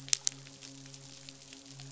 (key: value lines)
label: biophony, midshipman
recorder: SoundTrap 500